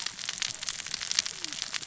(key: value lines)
label: biophony, cascading saw
recorder: SoundTrap 600 or HydroMoth